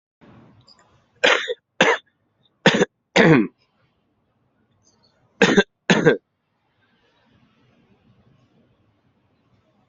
{"expert_labels": [{"quality": "good", "cough_type": "dry", "dyspnea": false, "wheezing": false, "stridor": false, "choking": false, "congestion": false, "nothing": true, "diagnosis": "upper respiratory tract infection", "severity": "mild"}], "age": 37, "gender": "male", "respiratory_condition": false, "fever_muscle_pain": false, "status": "COVID-19"}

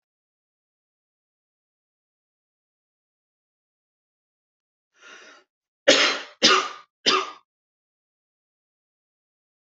{"expert_labels": [{"quality": "good", "cough_type": "unknown", "dyspnea": false, "wheezing": false, "stridor": false, "choking": false, "congestion": false, "nothing": true, "diagnosis": "upper respiratory tract infection", "severity": "mild"}], "age": 26, "gender": "female", "respiratory_condition": false, "fever_muscle_pain": true, "status": "symptomatic"}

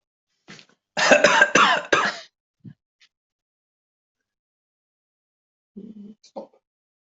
{"expert_labels": [{"quality": "good", "cough_type": "wet", "dyspnea": false, "wheezing": false, "stridor": false, "choking": false, "congestion": false, "nothing": true, "diagnosis": "upper respiratory tract infection", "severity": "mild"}]}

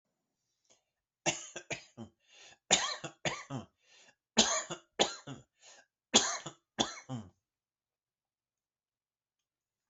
{"expert_labels": [{"quality": "good", "cough_type": "dry", "dyspnea": false, "wheezing": false, "stridor": false, "choking": false, "congestion": false, "nothing": true, "diagnosis": "healthy cough", "severity": "pseudocough/healthy cough"}], "age": 51, "gender": "male", "respiratory_condition": false, "fever_muscle_pain": true, "status": "COVID-19"}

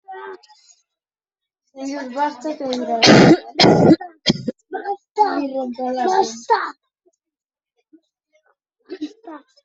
{"expert_labels": [{"quality": "poor", "cough_type": "dry", "dyspnea": false, "wheezing": false, "stridor": false, "choking": false, "congestion": false, "nothing": true, "diagnosis": "COVID-19", "severity": "mild"}]}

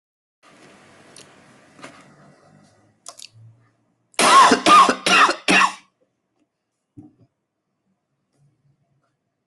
{"expert_labels": [{"quality": "ok", "cough_type": "dry", "dyspnea": false, "wheezing": false, "stridor": false, "choking": false, "congestion": false, "nothing": true, "diagnosis": "upper respiratory tract infection", "severity": "mild"}], "age": 37, "gender": "male", "respiratory_condition": false, "fever_muscle_pain": false, "status": "healthy"}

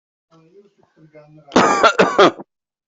{"expert_labels": [{"quality": "good", "cough_type": "dry", "dyspnea": false, "wheezing": false, "stridor": false, "choking": false, "congestion": false, "nothing": true, "diagnosis": "upper respiratory tract infection", "severity": "mild"}], "age": 38, "gender": "male", "respiratory_condition": false, "fever_muscle_pain": false, "status": "COVID-19"}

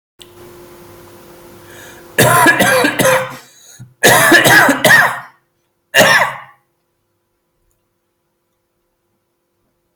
{"expert_labels": [{"quality": "good", "cough_type": "dry", "dyspnea": false, "wheezing": false, "stridor": false, "choking": false, "congestion": false, "nothing": true, "diagnosis": "upper respiratory tract infection", "severity": "mild"}], "age": 41, "gender": "male", "respiratory_condition": false, "fever_muscle_pain": false, "status": "healthy"}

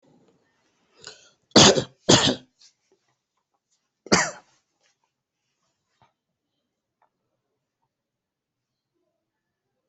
{"expert_labels": [{"quality": "ok", "cough_type": "dry", "dyspnea": false, "wheezing": false, "stridor": false, "choking": false, "congestion": false, "nothing": true, "diagnosis": "healthy cough", "severity": "pseudocough/healthy cough"}], "age": 35, "gender": "male", "respiratory_condition": false, "fever_muscle_pain": false, "status": "symptomatic"}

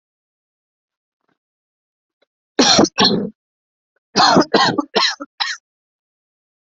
{"expert_labels": [{"quality": "ok", "cough_type": "dry", "dyspnea": false, "wheezing": false, "stridor": false, "choking": false, "congestion": false, "nothing": true, "diagnosis": "COVID-19", "severity": "mild"}], "age": 25, "gender": "male", "respiratory_condition": false, "fever_muscle_pain": false, "status": "healthy"}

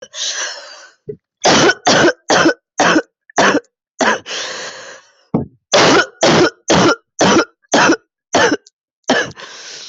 {"expert_labels": [{"quality": "ok", "cough_type": "dry", "dyspnea": true, "wheezing": false, "stridor": false, "choking": false, "congestion": true, "nothing": false, "diagnosis": "upper respiratory tract infection", "severity": "mild"}], "age": 29, "gender": "female", "respiratory_condition": false, "fever_muscle_pain": false, "status": "symptomatic"}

